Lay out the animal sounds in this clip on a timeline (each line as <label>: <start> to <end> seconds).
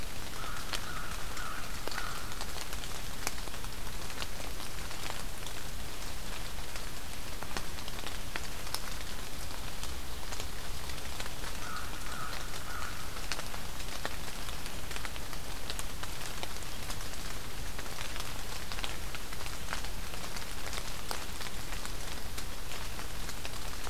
American Crow (Corvus brachyrhynchos): 0.0 to 3.2 seconds
American Crow (Corvus brachyrhynchos): 11.4 to 13.5 seconds